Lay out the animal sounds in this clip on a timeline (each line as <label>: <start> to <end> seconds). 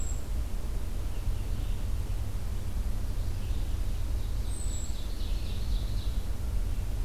Red-eyed Vireo (Vireo olivaceus): 0.0 to 5.6 seconds
Ovenbird (Seiurus aurocapilla): 4.2 to 6.4 seconds
Hermit Thrush (Catharus guttatus): 4.4 to 5.0 seconds